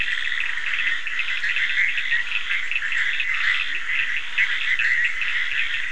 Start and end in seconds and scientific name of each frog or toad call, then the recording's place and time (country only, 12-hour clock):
0.0	5.9	Boana bischoffi
0.0	5.9	Scinax perereca
0.0	5.9	Sphaenorhynchus surdus
0.7	1.4	Leptodactylus latrans
3.5	4.1	Leptodactylus latrans
Brazil, 2:45am